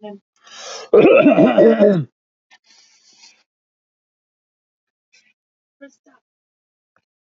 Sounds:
Throat clearing